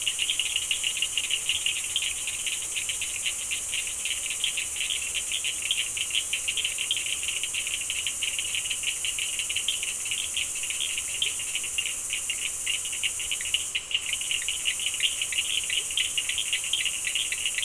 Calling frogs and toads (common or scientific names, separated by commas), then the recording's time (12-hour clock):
Cochran's lime tree frog
7:30pm